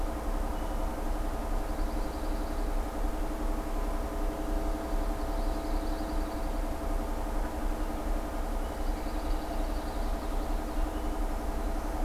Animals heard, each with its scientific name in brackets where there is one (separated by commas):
Pine Warbler (Setophaga pinus)